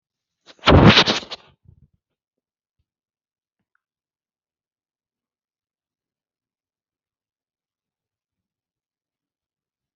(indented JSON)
{
  "expert_labels": [
    {
      "quality": "no cough present",
      "cough_type": "unknown",
      "dyspnea": false,
      "wheezing": false,
      "stridor": false,
      "choking": false,
      "congestion": false,
      "nothing": true,
      "diagnosis": "healthy cough",
      "severity": "pseudocough/healthy cough"
    }
  ]
}